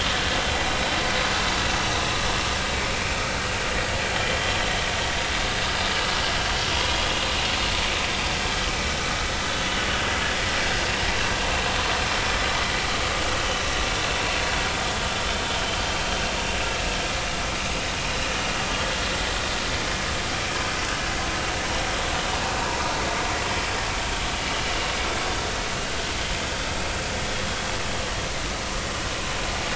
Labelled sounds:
3.0	3.3	vessel noise, 2.3 to 2.6 kHz

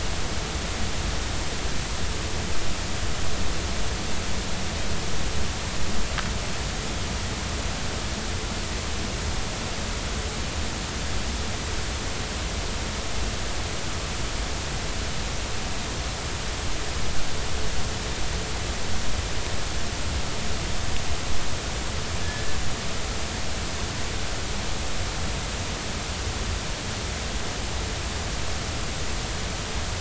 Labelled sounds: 22.2	22.6	killer whale, Bigg's (transient), 1.7 to 1.8 kHz

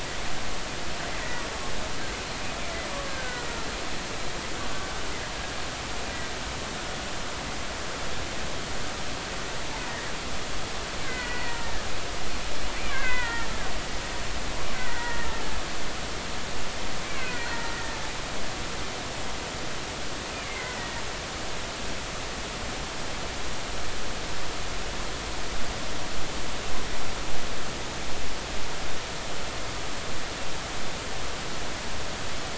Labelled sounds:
1.2	1.4	killer whale, Bigg's (transient), 1.8 to 2.0 kHz
3.1	3.5	killer whale, Bigg's (transient), 1.4 to 2.0 kHz
4.6	4.9	killer whale, Bigg's (transient), 1.1 to 1.2 kHz
9.8	10.1	killer whale, Bigg's (transient), 1.6 to 2.1 kHz
11.0	11.8	killer whale, Bigg's (transient), 1.4 to 2.1 kHz
12.8	13.5	killer whale, Bigg's (transient), 0.90 to 2.6 kHz
14.7	15.4	killer whale, Bigg's (transient), 1.3 to 2.1 kHz
17.4	18.0	killer whale, Bigg's (transient), 1.3 to 2.0 kHz
20.4	21.0	killer whale, Bigg's (transient), 1.8 to 2.3 kHz

